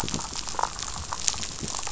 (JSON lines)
{"label": "biophony, damselfish", "recorder": "SoundTrap 500"}